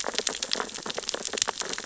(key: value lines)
label: biophony, sea urchins (Echinidae)
recorder: SoundTrap 600 or HydroMoth